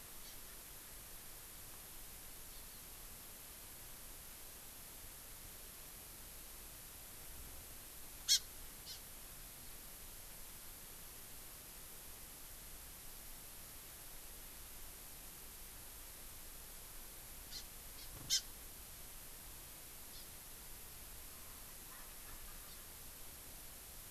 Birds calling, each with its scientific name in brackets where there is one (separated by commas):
Hawaii Amakihi (Chlorodrepanis virens), Erckel's Francolin (Pternistis erckelii)